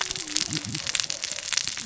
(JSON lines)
{"label": "biophony, cascading saw", "recorder": "SoundTrap 600 or HydroMoth"}